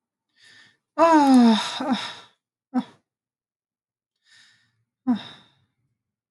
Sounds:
Sigh